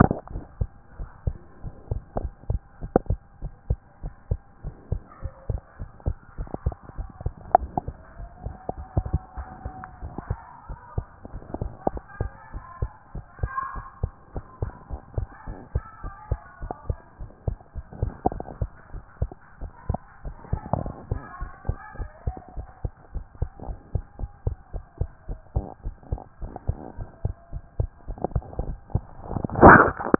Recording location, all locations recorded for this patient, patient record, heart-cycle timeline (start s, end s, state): pulmonary valve (PV)
aortic valve (AV)+pulmonary valve (PV)+tricuspid valve (TV)+mitral valve (MV)
#Age: Child
#Sex: Male
#Height: 142.0 cm
#Weight: 40.0 kg
#Pregnancy status: False
#Murmur: Absent
#Murmur locations: nan
#Most audible location: nan
#Systolic murmur timing: nan
#Systolic murmur shape: nan
#Systolic murmur grading: nan
#Systolic murmur pitch: nan
#Systolic murmur quality: nan
#Diastolic murmur timing: nan
#Diastolic murmur shape: nan
#Diastolic murmur grading: nan
#Diastolic murmur pitch: nan
#Diastolic murmur quality: nan
#Outcome: Normal
#Campaign: 2014 screening campaign
0.00	0.16	S2
0.16	0.34	diastole
0.34	0.46	S1
0.46	0.60	systole
0.60	0.72	S2
0.72	0.96	diastole
0.96	1.08	S1
1.08	1.26	systole
1.26	1.38	S2
1.38	1.60	diastole
1.60	1.72	S1
1.72	1.88	systole
1.88	1.98	S2
1.98	2.18	diastole
2.18	2.32	S1
2.32	2.48	systole
2.48	2.62	S2
2.62	2.82	diastole
2.82	2.92	S1
2.92	3.08	systole
3.08	3.20	S2
3.20	3.42	diastole
3.42	3.52	S1
3.52	3.68	systole
3.68	3.80	S2
3.80	4.02	diastole
4.02	4.14	S1
4.14	4.30	systole
4.30	4.40	S2
4.40	4.62	diastole
4.62	4.74	S1
4.74	4.90	systole
4.90	5.02	S2
5.02	5.22	diastole
5.22	5.32	S1
5.32	5.48	systole
5.48	5.60	S2
5.60	5.80	diastole
5.80	5.90	S1
5.90	6.06	systole
6.06	6.18	S2
6.18	6.38	diastole
6.38	6.48	S1
6.48	6.64	systole
6.64	6.74	S2
6.74	6.96	diastole
6.96	7.08	S1
7.08	7.24	systole
7.24	7.34	S2
7.34	7.56	diastole
7.56	7.70	S1
7.70	7.86	systole
7.86	7.96	S2
7.96	8.18	diastole
8.18	8.28	S1
8.28	8.44	systole
8.44	8.54	S2
8.54	8.76	diastole
8.76	8.86	S1
8.86	8.98	systole
8.98	9.12	S2
9.12	9.36	diastole
9.36	9.48	S1
9.48	9.64	systole
9.64	9.76	S2
9.76	10.00	diastole
10.00	10.12	S1
10.12	10.30	systole
10.30	10.42	S2
10.42	10.66	diastole
10.66	10.78	S1
10.78	10.96	systole
10.96	11.06	S2
11.06	11.30	diastole
11.30	11.42	S1
11.42	11.60	systole
11.60	11.72	S2
11.72	11.92	diastole
11.92	12.04	S1
12.04	12.20	systole
12.20	12.32	S2
12.32	12.54	diastole
12.54	12.64	S1
12.64	12.80	systole
12.80	12.92	S2
12.92	13.14	diastole
13.14	13.26	S1
13.26	13.42	systole
13.42	13.52	S2
13.52	13.74	diastole
13.74	13.86	S1
13.86	14.02	systole
14.02	14.12	S2
14.12	14.34	diastole
14.34	14.44	S1
14.44	14.60	systole
14.60	14.72	S2
14.72	14.92	diastole
14.92	15.02	S1
15.02	15.16	systole
15.16	15.28	S2
15.28	15.48	diastole
15.48	15.58	S1
15.58	15.74	systole
15.74	15.84	S2
15.84	16.04	diastole
16.04	16.14	S1
16.14	16.30	systole
16.30	16.40	S2
16.40	16.62	diastole
16.62	16.72	S1
16.72	16.88	systole
16.88	16.98	S2
16.98	17.20	diastole
17.20	17.30	S1
17.30	17.46	systole
17.46	17.56	S2
17.56	17.76	diastole
17.76	17.86	S1
17.86	18.00	systole
18.00	18.14	S2
18.14	18.34	diastole
18.34	18.44	S1
18.44	18.60	systole
18.60	18.70	S2
18.70	18.92	diastole
18.92	19.04	S1
19.04	19.20	systole
19.20	19.32	S2
19.32	19.56	diastole
19.56	19.70	S1
19.70	19.88	systole
19.88	20.00	S2
20.00	20.22	diastole
20.22	20.34	S1
20.34	20.50	systole
20.50	20.60	S2
20.60	20.78	diastole
20.78	20.92	S1
20.92	21.10	systole
21.10	21.20	S2
21.20	21.40	diastole
21.40	21.50	S1
21.50	21.66	systole
21.66	21.76	S2
21.76	21.98	diastole
21.98	22.10	S1
22.10	22.26	systole
22.26	22.36	S2
22.36	22.56	diastole
22.56	22.66	S1
22.66	22.82	systole
22.82	22.92	S2
22.92	23.14	diastole
23.14	23.24	S1
23.24	23.40	systole
23.40	23.50	S2
23.50	23.68	diastole
23.68	23.78	S1
23.78	23.92	systole
23.92	24.02	S2
24.02	24.20	diastole
24.20	24.30	S1
24.30	24.44	systole
24.44	24.56	S2
24.56	24.74	diastole
24.74	24.84	S1
24.84	24.98	systole
24.98	25.08	S2
25.08	25.28	diastole
25.28	25.38	S1
25.38	25.54	systole
25.54	25.66	S2
25.66	25.86	diastole
25.86	25.96	S1
25.96	26.10	systole
26.10	26.20	S2
26.20	26.42	diastole
26.42	26.52	S1
26.52	26.66	systole
26.66	26.78	S2
26.78	26.98	diastole
26.98	27.08	S1
27.08	27.24	systole
27.24	27.34	S2
27.34	27.54	diastole
27.54	27.64	S1
27.64	27.78	systole
27.78	27.90	S2
27.90	28.10	diastole
28.10	28.20	S1
28.20	28.34	systole
28.34	28.44	S2
28.44	28.60	diastole
28.60	28.76	S1
28.76	28.92	systole
28.92	29.04	S2
29.04	29.26	diastole
29.26	29.40	S1
29.40	29.52	systole
29.52	29.56	S2
29.56	29.92	diastole
29.92	30.04	S1
30.04	30.19	systole